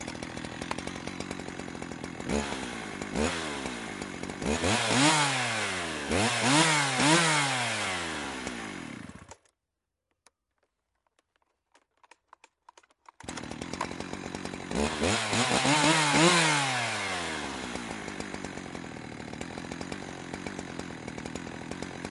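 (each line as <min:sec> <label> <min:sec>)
0:00.0 A chainsaw engine runs steadily, producing a low rumbling sound. 0:02.2
0:02.2 An engine runs continuously, producing a rumbling motor sound that gradually gets louder. 0:09.4
0:13.1 A chainsaw engine runs steadily, producing a low rumbling motor sound. 0:14.7
0:14.7 An engine runs continuously, producing a rumbling motor sound that gradually gets louder. 0:17.7
0:17.7 A chainsaw engine runs steadily, producing a low rumbling sound. 0:22.1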